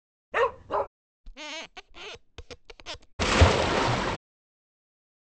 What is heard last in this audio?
waves